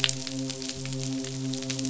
{"label": "biophony, midshipman", "recorder": "SoundTrap 500"}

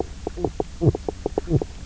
{"label": "biophony, knock croak", "recorder": "SoundTrap 300"}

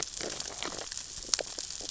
{"label": "biophony, sea urchins (Echinidae)", "recorder": "SoundTrap 600 or HydroMoth"}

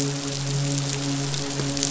{"label": "biophony, midshipman", "recorder": "SoundTrap 500"}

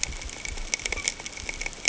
{"label": "ambient", "recorder": "HydroMoth"}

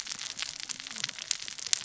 {"label": "biophony, cascading saw", "recorder": "SoundTrap 600 or HydroMoth"}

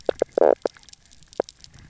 {"label": "biophony, knock croak", "recorder": "SoundTrap 300"}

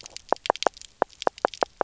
{"label": "biophony, knock croak", "recorder": "SoundTrap 300"}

